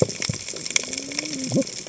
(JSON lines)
{"label": "biophony, cascading saw", "recorder": "HydroMoth"}